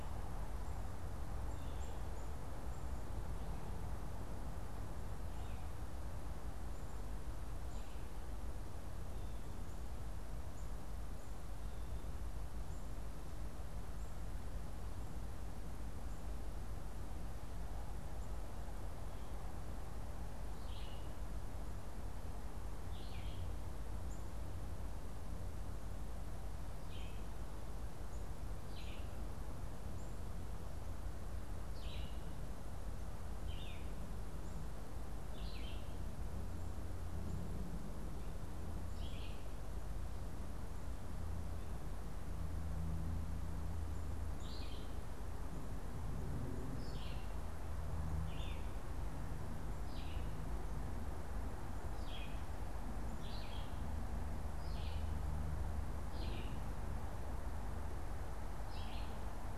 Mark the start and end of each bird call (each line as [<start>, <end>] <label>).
[0.00, 3.11] Black-capped Chickadee (Poecile atricapillus)
[1.31, 2.01] Blue Jay (Cyanocitta cristata)
[7.31, 14.61] Black-capped Chickadee (Poecile atricapillus)
[20.31, 59.51] Red-eyed Vireo (Vireo olivaceus)
[23.71, 30.31] Black-capped Chickadee (Poecile atricapillus)